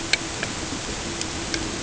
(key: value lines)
label: ambient
recorder: HydroMoth